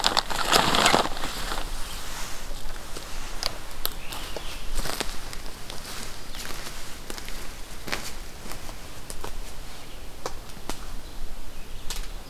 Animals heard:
forest ambience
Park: Hubbard Brook Experimental Forest